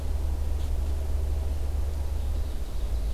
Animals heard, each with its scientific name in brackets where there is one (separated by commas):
Ovenbird (Seiurus aurocapilla)